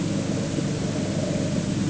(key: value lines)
label: anthrophony, boat engine
recorder: HydroMoth